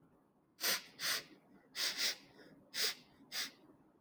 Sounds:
Sniff